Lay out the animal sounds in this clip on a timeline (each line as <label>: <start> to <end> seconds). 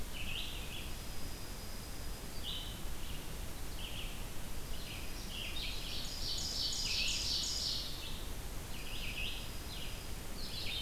Red-eyed Vireo (Vireo olivaceus): 0.0 to 5.8 seconds
Dark-eyed Junco (Junco hyemalis): 0.6 to 2.4 seconds
Dark-eyed Junco (Junco hyemalis): 4.4 to 6.0 seconds
Ovenbird (Seiurus aurocapilla): 5.5 to 8.0 seconds
Red-eyed Vireo (Vireo olivaceus): 6.6 to 10.8 seconds
Dark-eyed Junco (Junco hyemalis): 8.6 to 10.3 seconds